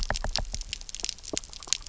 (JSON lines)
{"label": "biophony, knock", "recorder": "SoundTrap 300"}